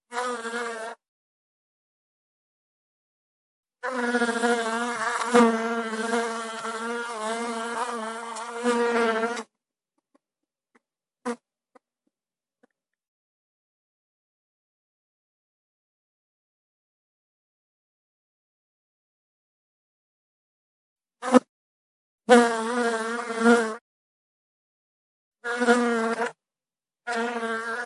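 0.0s A fly is buzzing. 1.1s
3.7s A fly is buzzing. 9.5s
11.0s A fly is buzzing. 11.6s
21.2s A fly is buzzing. 21.5s
22.1s A fly is buzzing. 23.8s
25.3s A fly is buzzing. 27.9s

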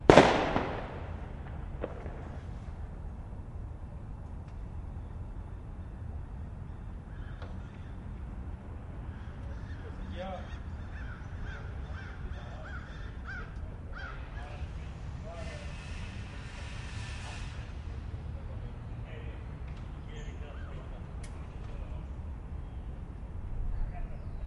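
0.0s A loud bang. 0.9s
9.7s Birds chirping in the background. 24.5s
9.7s People are talking in the background. 24.5s

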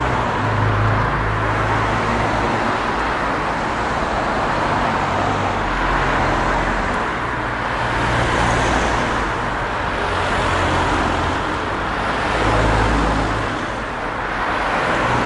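0.0s A car engine runs loudly. 7.2s
7.2s A car engine revs repeatedly, getting louder and quieter. 15.3s

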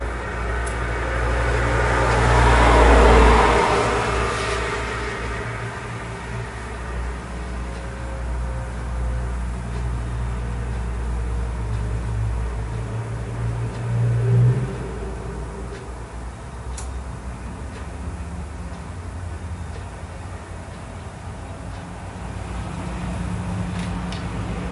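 0.0s A siren sounds quietly in a repeating pattern outdoors. 7.8s
0.0s An engine hums loudly with a gradually increasing and decreasing pattern. 7.8s
0.0s An engine hums quietly in a steady, distant pattern. 24.7s
0.0s Traffic lights clicking quietly in a repeating pattern. 24.7s
13.7s An engine is humming loudly in a steady, distant pattern. 14.7s
20.9s An engine hums quietly with a gradually increasing pattern. 24.7s

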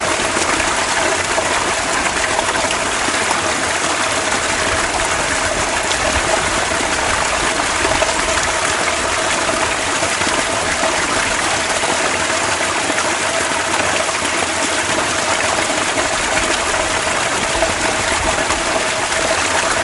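0.0s Water running. 19.8s

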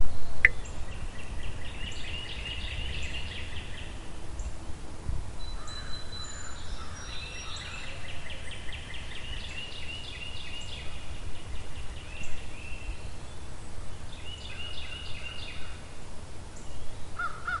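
0.0s A dense chorus of overlapping bird calls including shrill whistles, rapid chirps, guttural caws, and melodic trills. 17.6s
0.0s Steady equipment hiss. 17.6s

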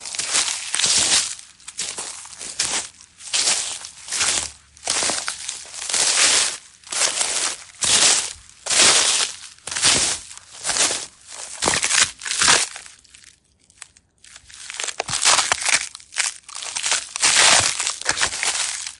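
0.0s Footsteps of a person walking regularly. 19.0s

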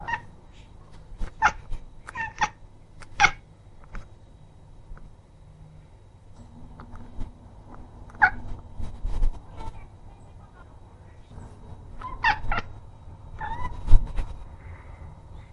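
0.0s A cat meows. 0.2s
1.4s A cat meows. 1.5s
2.4s A cat meows. 2.5s
3.2s A cat meows. 3.3s
8.2s A cat meows. 8.3s
12.2s A cat meows. 12.6s
13.3s A cat meows. 13.8s

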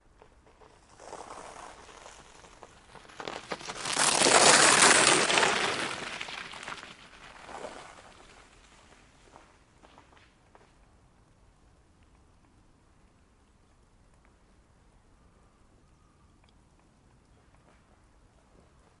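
0.1s Ice cracks with a sharp, crisp sound. 11.0s

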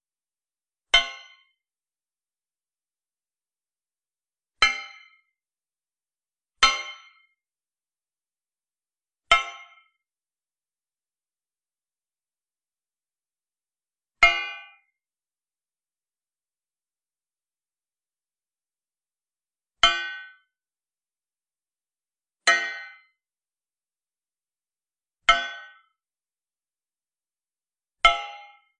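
0.8s A high-pitched metallic hitting noise. 1.3s
4.5s A high-pitched metallic hitting noise. 5.1s
6.5s A high-pitched metallic hitting noise. 7.2s
9.2s Metallic hitting noise. 9.7s
14.1s Low-pitched metallic hitting noise. 14.8s
19.8s Low-pitched metallic hitting noise. 20.5s
22.4s Low-pitched metallic hitting noise. 23.0s
25.2s Low-pitched metallic hitting noise. 25.8s
28.0s Low-pitched metallic hitting noise. 28.6s

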